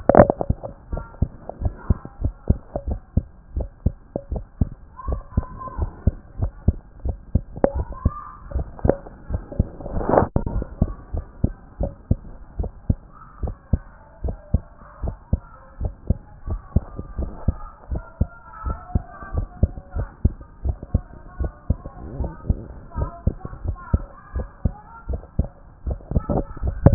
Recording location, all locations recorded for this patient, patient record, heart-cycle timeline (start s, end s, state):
tricuspid valve (TV)
aortic valve (AV)+pulmonary valve (PV)+tricuspid valve (TV)+mitral valve (MV)
#Age: Child
#Sex: Male
#Height: 140.0 cm
#Weight: 33.2 kg
#Pregnancy status: False
#Murmur: Absent
#Murmur locations: nan
#Most audible location: nan
#Systolic murmur timing: nan
#Systolic murmur shape: nan
#Systolic murmur grading: nan
#Systolic murmur pitch: nan
#Systolic murmur quality: nan
#Diastolic murmur timing: nan
#Diastolic murmur shape: nan
#Diastolic murmur grading: nan
#Diastolic murmur pitch: nan
#Diastolic murmur quality: nan
#Outcome: Normal
#Campaign: 2014 screening campaign
0.00	10.92	unannotated
10.92	11.14	diastole
11.14	11.24	S1
11.24	11.42	systole
11.42	11.52	S2
11.52	11.80	diastole
11.80	11.92	S1
11.92	12.10	systole
12.10	12.18	S2
12.18	12.58	diastole
12.58	12.70	S1
12.70	12.88	systole
12.88	12.98	S2
12.98	13.42	diastole
13.42	13.54	S1
13.54	13.72	systole
13.72	13.82	S2
13.82	14.24	diastole
14.24	14.36	S1
14.36	14.52	systole
14.52	14.62	S2
14.62	15.02	diastole
15.02	15.16	S1
15.16	15.32	systole
15.32	15.42	S2
15.42	15.80	diastole
15.80	15.92	S1
15.92	16.08	systole
16.08	16.18	S2
16.18	16.48	diastole
16.48	16.60	S1
16.60	16.74	systole
16.74	16.84	S2
16.84	17.18	diastole
17.18	17.30	S1
17.30	17.46	systole
17.46	17.56	S2
17.56	17.90	diastole
17.90	18.02	S1
18.02	18.20	systole
18.20	18.28	S2
18.28	18.66	diastole
18.66	18.78	S1
18.78	18.94	systole
18.94	19.04	S2
19.04	19.34	diastole
19.34	19.48	S1
19.48	19.62	systole
19.62	19.72	S2
19.72	19.96	diastole
19.96	20.08	S1
20.08	20.24	systole
20.24	20.34	S2
20.34	20.64	diastole
20.64	20.76	S1
20.76	20.92	systole
20.92	21.04	S2
21.04	21.40	diastole
21.40	21.52	S1
21.52	21.68	systole
21.68	21.78	S2
21.78	22.18	diastole
22.18	22.32	S1
22.32	22.48	systole
22.48	22.60	S2
22.60	22.98	diastole
22.98	23.10	S1
23.10	23.26	systole
23.26	23.36	S2
23.36	23.66	diastole
23.66	23.78	S1
23.78	23.92	systole
23.92	24.04	S2
24.04	24.34	diastole
24.34	24.46	S1
24.46	24.64	systole
24.64	24.74	S2
24.74	25.10	diastole
25.10	25.22	S1
25.22	25.38	systole
25.38	25.48	S2
25.48	25.66	diastole
25.66	26.94	unannotated